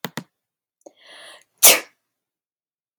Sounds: Sneeze